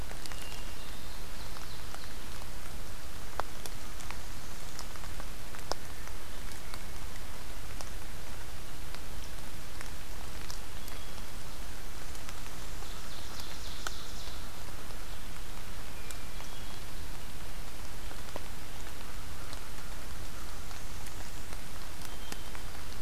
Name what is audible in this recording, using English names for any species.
Ovenbird, Hermit Thrush, American Crow